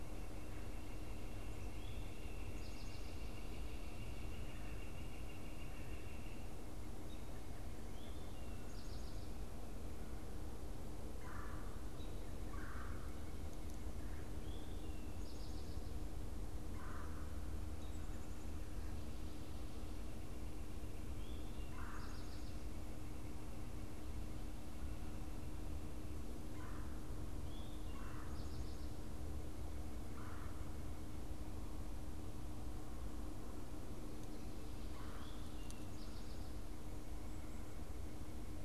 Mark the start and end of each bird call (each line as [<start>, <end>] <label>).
[1.03, 6.53] Northern Flicker (Colaptes auratus)
[6.83, 7.33] American Robin (Turdus migratorius)
[7.63, 9.33] Eastern Towhee (Pipilo erythrophthalmus)
[11.03, 13.33] Red-bellied Woodpecker (Melanerpes carolinus)
[14.23, 15.83] Eastern Towhee (Pipilo erythrophthalmus)
[16.73, 17.23] Red-bellied Woodpecker (Melanerpes carolinus)
[21.53, 22.33] Red-bellied Woodpecker (Melanerpes carolinus)
[26.23, 30.93] Red-bellied Woodpecker (Melanerpes carolinus)
[34.83, 35.33] Red-bellied Woodpecker (Melanerpes carolinus)
[35.13, 36.53] Eastern Towhee (Pipilo erythrophthalmus)